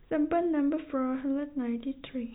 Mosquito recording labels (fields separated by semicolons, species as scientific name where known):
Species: no mosquito; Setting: cup